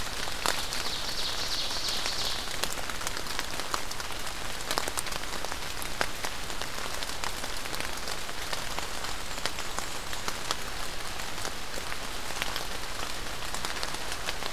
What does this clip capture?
Ovenbird, Black-and-white Warbler